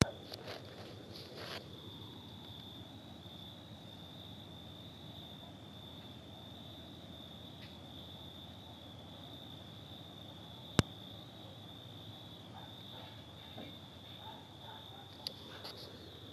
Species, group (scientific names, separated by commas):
Oecanthus pellucens, Orthoptera